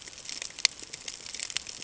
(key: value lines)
label: ambient
recorder: HydroMoth